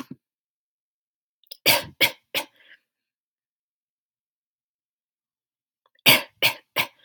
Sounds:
Cough